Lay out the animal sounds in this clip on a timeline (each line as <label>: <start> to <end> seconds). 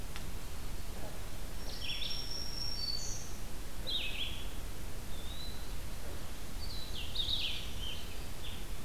Red-eyed Vireo (Vireo olivaceus): 0.0 to 8.8 seconds
Black-throated Green Warbler (Setophaga virens): 1.4 to 3.5 seconds
Eastern Wood-Pewee (Contopus virens): 5.1 to 5.8 seconds